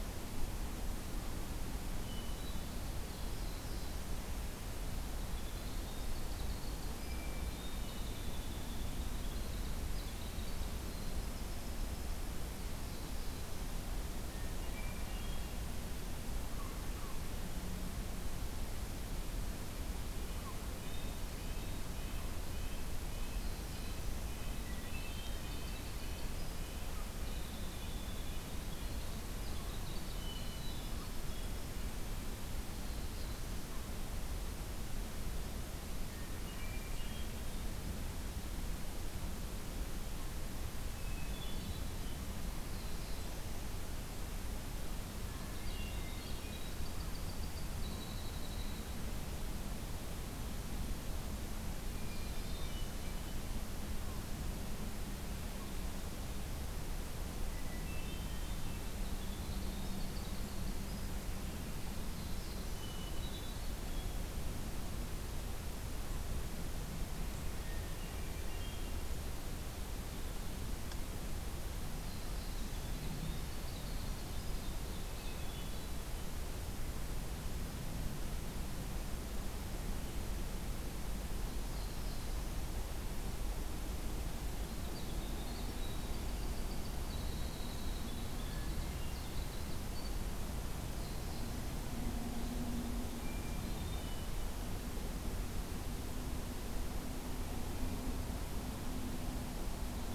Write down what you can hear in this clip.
Hermit Thrush, Black-throated Blue Warbler, Winter Wren, Red-breasted Nuthatch